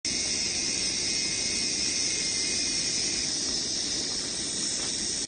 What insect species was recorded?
Psaltoda plaga